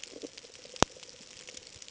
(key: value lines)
label: ambient
recorder: HydroMoth